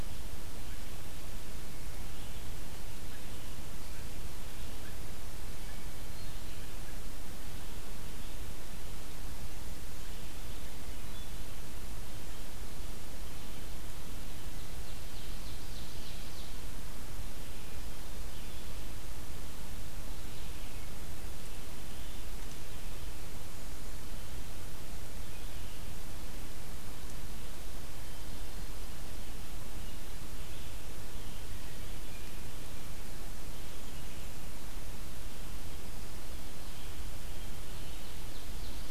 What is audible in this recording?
Red-eyed Vireo, Ovenbird